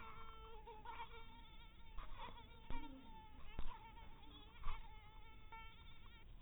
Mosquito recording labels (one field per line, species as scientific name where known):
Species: mosquito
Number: one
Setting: cup